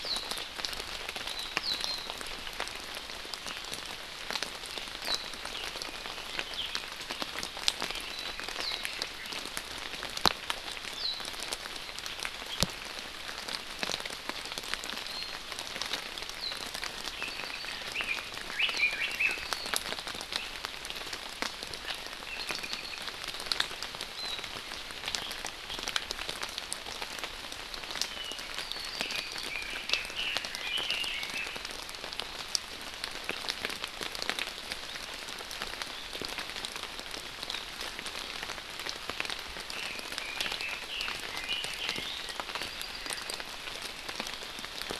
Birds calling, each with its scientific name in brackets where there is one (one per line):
Apapane (Himatione sanguinea)
Warbling White-eye (Zosterops japonicus)
Hawaii Amakihi (Chlorodrepanis virens)
Red-billed Leiothrix (Leiothrix lutea)